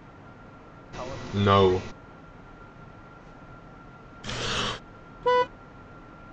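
At 1.34 seconds, someone says "No." Then, at 4.22 seconds, there is breathing. Finally, at 5.22 seconds, you can hear a vehicle horn.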